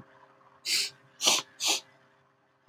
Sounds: Sniff